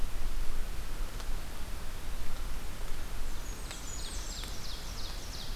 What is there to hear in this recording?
Blackburnian Warbler, Ovenbird